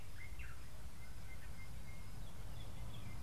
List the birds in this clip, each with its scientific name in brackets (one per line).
Sulphur-breasted Bushshrike (Telophorus sulfureopectus)